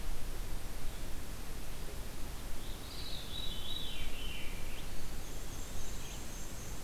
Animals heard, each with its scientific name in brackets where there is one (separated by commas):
Black-and-white Warbler (Mniotilta varia), Eastern Wood-Pewee (Contopus virens), Veery (Catharus fuscescens), Red-eyed Vireo (Vireo olivaceus)